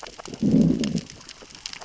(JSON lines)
{"label": "biophony, growl", "recorder": "SoundTrap 600 or HydroMoth"}